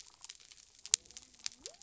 {"label": "biophony", "recorder": "SoundTrap 300"}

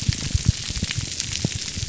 {"label": "biophony, grouper groan", "recorder": "SoundTrap 300"}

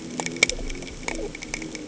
{"label": "anthrophony, boat engine", "recorder": "HydroMoth"}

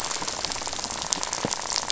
{"label": "biophony, rattle", "recorder": "SoundTrap 500"}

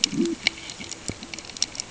{"label": "ambient", "recorder": "HydroMoth"}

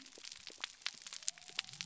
{"label": "biophony", "recorder": "SoundTrap 300"}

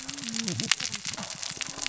{"label": "biophony, cascading saw", "recorder": "SoundTrap 600 or HydroMoth"}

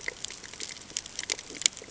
{"label": "ambient", "recorder": "HydroMoth"}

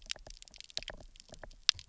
{"label": "biophony, knock", "recorder": "SoundTrap 300"}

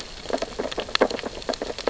{"label": "biophony, sea urchins (Echinidae)", "recorder": "SoundTrap 600 or HydroMoth"}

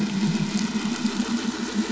{"label": "anthrophony, boat engine", "recorder": "SoundTrap 500"}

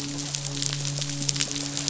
{"label": "biophony, midshipman", "recorder": "SoundTrap 500"}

